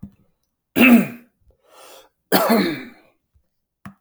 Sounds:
Throat clearing